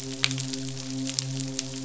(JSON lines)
{"label": "biophony, midshipman", "recorder": "SoundTrap 500"}